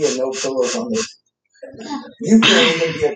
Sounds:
Sniff